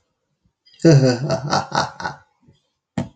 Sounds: Laughter